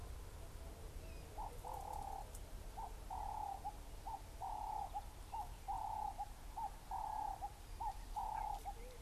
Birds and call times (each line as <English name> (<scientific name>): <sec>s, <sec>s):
Ring-necked Dove (Streptopelia capicola): 7.1s